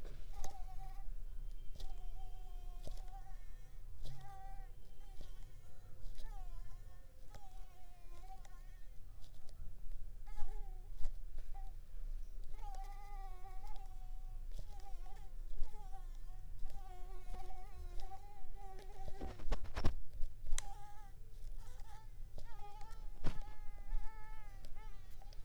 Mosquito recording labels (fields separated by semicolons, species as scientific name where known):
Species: Mansonia africanus; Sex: female; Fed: unfed; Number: one; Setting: cup